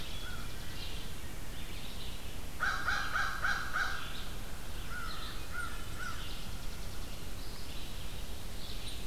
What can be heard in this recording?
American Crow, Chipping Sparrow, Red-eyed Vireo